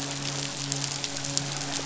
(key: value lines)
label: biophony, midshipman
recorder: SoundTrap 500